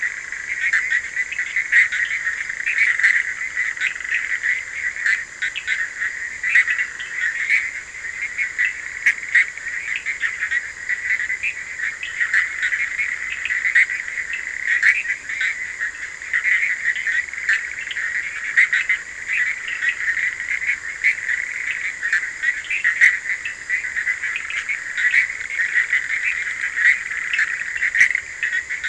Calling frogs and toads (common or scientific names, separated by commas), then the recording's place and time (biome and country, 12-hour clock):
Bischoff's tree frog, Cochran's lime tree frog
Atlantic Forest, Brazil, 2:00am